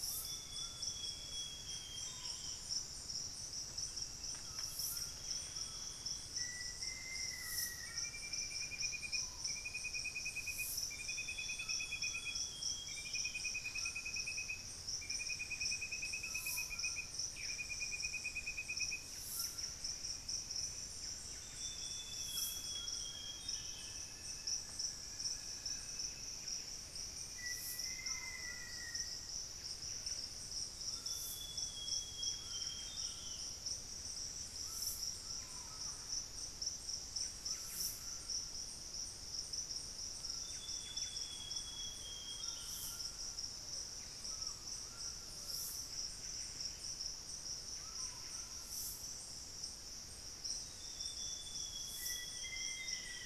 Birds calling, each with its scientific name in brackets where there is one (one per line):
Plain-winged Antshrike (Thamnophilus schistaceus)
Hauxwell's Thrush (Turdus hauxwelli)
Buff-breasted Wren (Cantorchilus leucotis)
Thrush-like Wren (Campylorhynchus turdinus)
Black-faced Antthrush (Formicarius analis)
Amazonian Grosbeak (Cyanoloxia rothschildii)
unidentified bird
Screaming Piha (Lipaugus vociferans)
White-throated Toucan (Ramphastos tucanus)